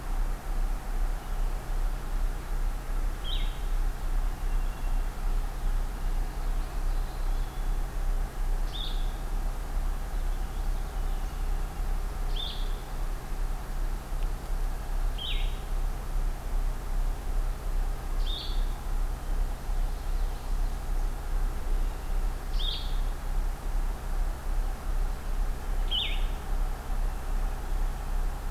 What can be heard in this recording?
Blue-headed Vireo, Purple Finch, Common Yellowthroat